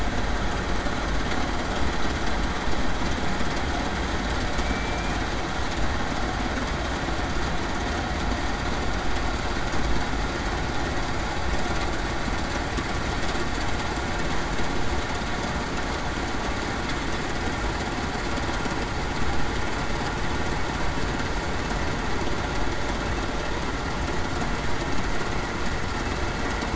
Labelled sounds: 4.6	5.2	killer whale, Bigg's (transient), 2.3 to 2.5 kHz

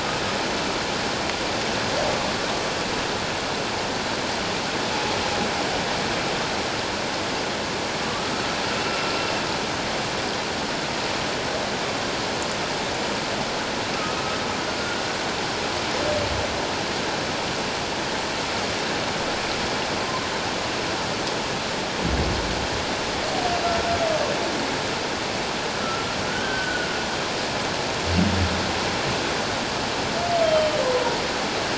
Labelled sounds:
8.1	8.4	humpback whale, 1.1 to 1.5 kHz
20.0	20.3	humpback whale, 0.97 to 1.1 kHz
25.8	26.9	humpback whale, 1.3 to 3.2 kHz
30.4	30.7	humpback whale, 3.0 to 3.3 kHz

